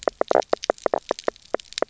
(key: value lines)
label: biophony, knock croak
recorder: SoundTrap 300